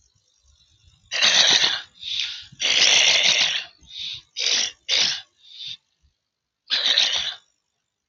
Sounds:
Throat clearing